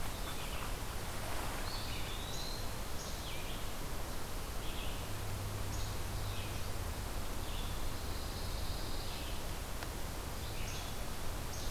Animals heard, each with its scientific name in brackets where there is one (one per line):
Least Flycatcher (Empidonax minimus)
Eastern Wood-Pewee (Contopus virens)
Pine Warbler (Setophaga pinus)
Red-eyed Vireo (Vireo olivaceus)